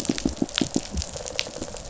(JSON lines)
{"label": "biophony, pulse", "recorder": "SoundTrap 500"}